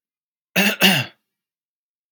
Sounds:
Cough